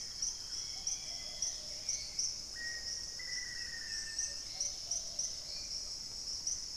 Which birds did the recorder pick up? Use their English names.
Dusky-capped Greenlet, Hauxwell's Thrush, Plumbeous Pigeon, Black-faced Antthrush, Black-capped Becard